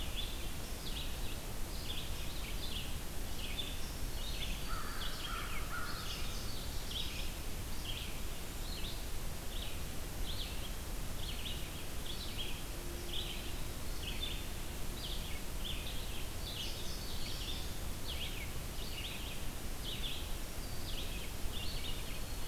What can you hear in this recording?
Red-eyed Vireo, Indigo Bunting, Black-throated Green Warbler, American Crow